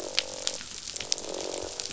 {"label": "biophony, croak", "recorder": "SoundTrap 500"}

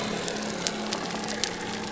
{"label": "biophony", "recorder": "SoundTrap 300"}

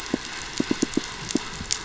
{"label": "biophony, pulse", "recorder": "SoundTrap 500"}
{"label": "anthrophony, boat engine", "recorder": "SoundTrap 500"}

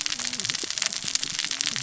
{"label": "biophony, cascading saw", "recorder": "SoundTrap 600 or HydroMoth"}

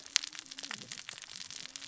{"label": "biophony, cascading saw", "recorder": "SoundTrap 600 or HydroMoth"}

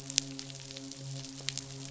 {"label": "biophony, midshipman", "recorder": "SoundTrap 500"}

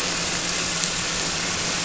{"label": "anthrophony, boat engine", "recorder": "SoundTrap 300"}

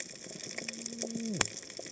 {"label": "biophony, cascading saw", "recorder": "HydroMoth"}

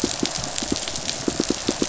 {"label": "biophony, pulse", "recorder": "SoundTrap 500"}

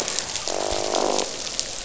{"label": "biophony, croak", "recorder": "SoundTrap 500"}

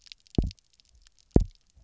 {"label": "biophony, double pulse", "recorder": "SoundTrap 300"}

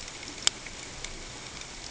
{"label": "ambient", "recorder": "HydroMoth"}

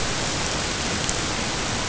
{"label": "ambient", "recorder": "HydroMoth"}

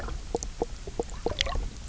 {"label": "biophony, knock croak", "recorder": "SoundTrap 300"}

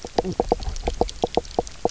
{"label": "biophony, knock croak", "recorder": "SoundTrap 300"}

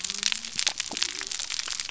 {"label": "biophony", "recorder": "SoundTrap 300"}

